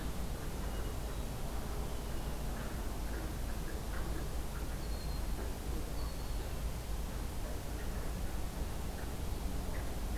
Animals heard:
Red-winged Blackbird (Agelaius phoeniceus)

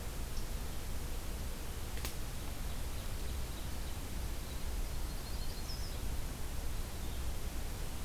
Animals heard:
Yellow-rumped Warbler (Setophaga coronata), Ovenbird (Seiurus aurocapilla)

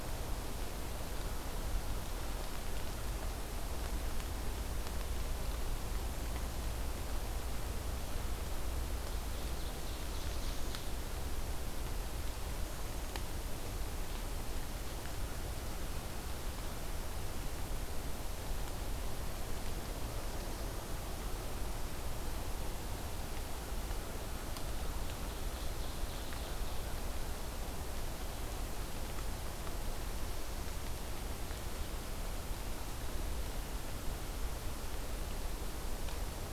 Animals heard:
Black-throated Blue Warbler (Setophaga caerulescens), Ovenbird (Seiurus aurocapilla)

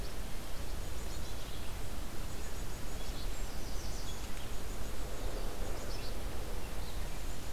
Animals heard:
Red-eyed Vireo (Vireo olivaceus), Black-capped Chickadee (Poecile atricapillus), American Redstart (Setophaga ruticilla)

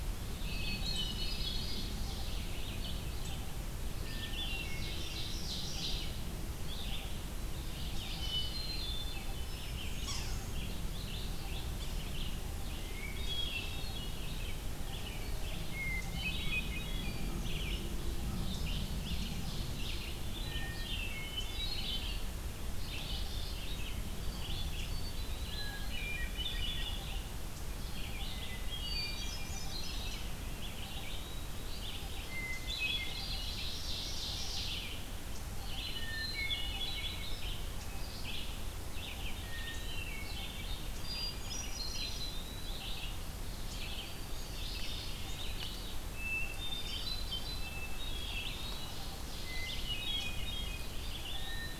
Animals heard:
Red-eyed Vireo (Vireo olivaceus), Ovenbird (Seiurus aurocapilla), Yellow-bellied Sapsucker (Sphyrapicus varius), Eastern Wood-Pewee (Contopus virens), Hermit Thrush (Catharus guttatus)

